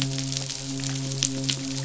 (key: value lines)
label: biophony, midshipman
recorder: SoundTrap 500